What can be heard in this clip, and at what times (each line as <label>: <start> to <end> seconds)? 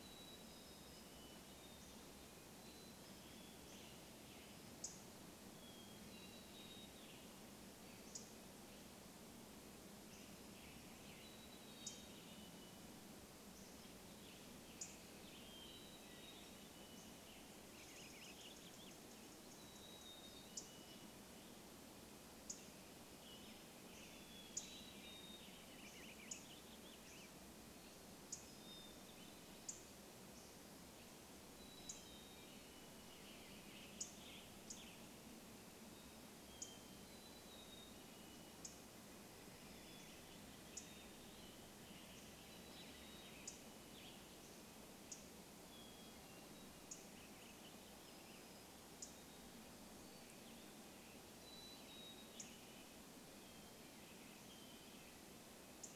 unidentified sound: 0 to 2 seconds
Mountain Chickadee song: 0 to 4 seconds
Western Tanager song: 2 to 8 seconds
unidentified bird chip note: 4 to 6 seconds
Hermit Thrush song: 4 to 8 seconds
Mountain Chickadee song: 6 to 8 seconds
unidentified bird chip note: 8 to 12 seconds
Western Tanager song: 10 to 12 seconds
Hermit Thrush song: 10 to 16 seconds
Mountain Chickadee song: 10 to 22 seconds
Western Tanager song: 14 to 18 seconds
unidentified bird chip note: 14 to 56 seconds
Warbling Vireo song: 16 to 20 seconds
Western Tanager song: 22 to 26 seconds
Mountain Chickadee song: 24 to 26 seconds
Warbling Vireo song: 24 to 28 seconds
Hermit Thrush song: 28 to 30 seconds
Mountain Chickadee song: 30 to 34 seconds
Warbling Vireo song: 32 to 34 seconds
Western Tanager song: 34 to 36 seconds
Hermit Thrush song: 36 to 38 seconds
Mountain Chickadee song: 36 to 40 seconds
Warbling Vireo song: 38 to 42 seconds
Hermit Thrush song: 40 to 42 seconds
Mountain Chickadee song: 42 to 44 seconds
Western Tanager song: 42 to 46 seconds
Hermit Thrush song: 44 to 48 seconds
Warbling Vireo song: 46 to 50 seconds
Mountain Chickadee song: 50 to 54 seconds
unidentified sound: 52 to 56 seconds